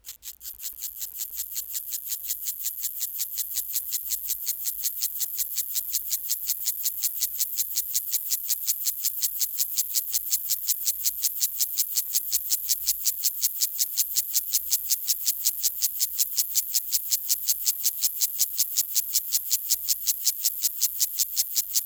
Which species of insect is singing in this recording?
Gomphocerus sibiricus